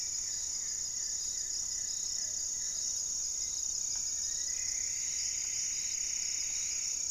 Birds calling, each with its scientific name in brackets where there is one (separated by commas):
Plumbeous Pigeon (Patagioenas plumbea), Hauxwell's Thrush (Turdus hauxwelli), Black-faced Antthrush (Formicarius analis), Goeldi's Antbird (Akletos goeldii), Plumbeous Antbird (Myrmelastes hyperythrus)